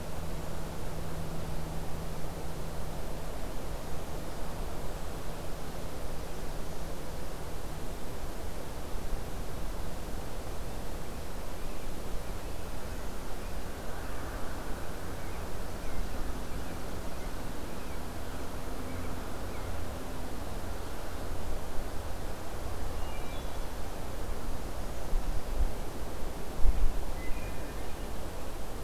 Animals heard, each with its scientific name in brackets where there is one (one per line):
Wood Thrush (Hylocichla mustelina)